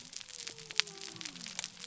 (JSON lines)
{"label": "biophony", "recorder": "SoundTrap 300"}